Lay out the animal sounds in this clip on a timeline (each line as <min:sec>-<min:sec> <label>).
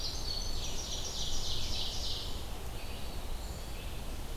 0:00.0-0:01.8 Winter Wren (Troglodytes hiemalis)
0:00.0-0:04.4 Red-eyed Vireo (Vireo olivaceus)
0:00.1-0:02.6 Ovenbird (Seiurus aurocapilla)
0:02.6-0:03.8 Eastern Wood-Pewee (Contopus virens)
0:03.4-0:03.7 Black-capped Chickadee (Poecile atricapillus)